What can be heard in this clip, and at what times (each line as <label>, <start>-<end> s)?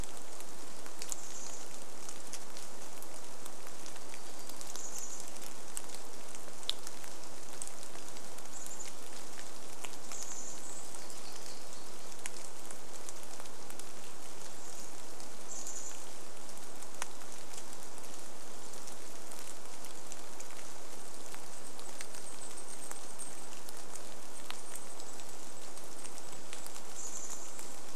Chestnut-backed Chickadee call, 0-2 s
rain, 0-28 s
Chestnut-backed Chickadee call, 4-6 s
warbler song, 4-6 s
Chestnut-backed Chickadee call, 8-12 s
warbler song, 10-12 s
Chestnut-backed Chickadee call, 14-16 s
Golden-crowned Kinglet song, 20-28 s
Chestnut-backed Chickadee call, 26-28 s